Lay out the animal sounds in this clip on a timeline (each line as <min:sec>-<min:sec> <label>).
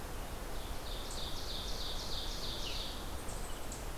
0:00.4-0:03.2 Ovenbird (Seiurus aurocapilla)